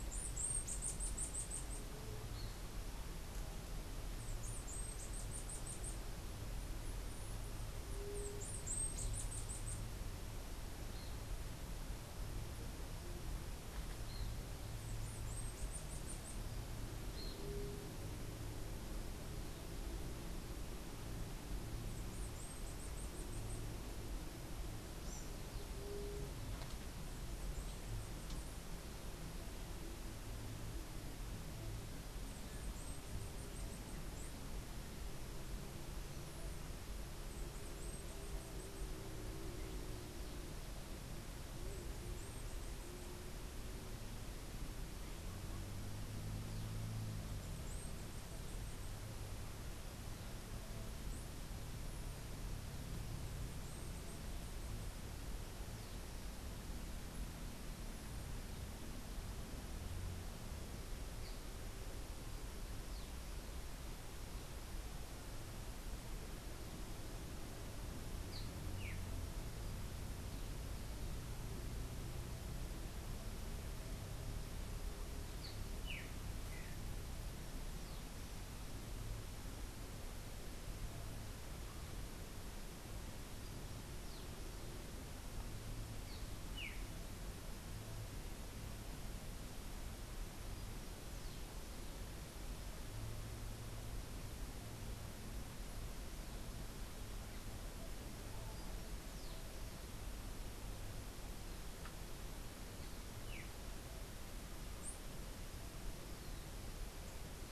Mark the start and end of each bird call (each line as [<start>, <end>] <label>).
[0.00, 10.03] Bananaquit (Coereba flaveola)
[7.83, 8.43] White-tipped Dove (Leptotila verreauxi)
[14.63, 16.53] Bananaquit (Coereba flaveola)
[21.83, 23.63] Bananaquit (Coereba flaveola)
[25.73, 26.33] White-tipped Dove (Leptotila verreauxi)
[32.03, 34.53] Bananaquit (Coereba flaveola)
[37.03, 38.93] Bananaquit (Coereba flaveola)
[68.13, 69.13] Streaked Saltator (Saltator striatipectus)
[75.23, 76.83] Streaked Saltator (Saltator striatipectus)
[85.93, 87.03] Streaked Saltator (Saltator striatipectus)
[102.93, 103.73] Streaked Saltator (Saltator striatipectus)